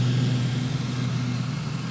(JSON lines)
{"label": "anthrophony, boat engine", "recorder": "SoundTrap 500"}